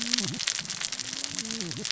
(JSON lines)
{"label": "biophony, cascading saw", "recorder": "SoundTrap 600 or HydroMoth"}